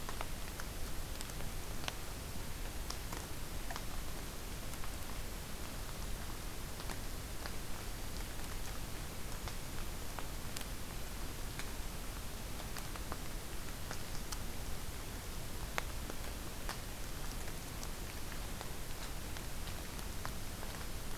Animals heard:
forest ambience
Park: Acadia National Park